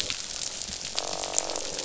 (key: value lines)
label: biophony, croak
recorder: SoundTrap 500